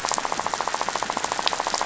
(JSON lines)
{"label": "biophony, rattle", "recorder": "SoundTrap 500"}